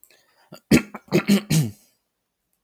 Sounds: Throat clearing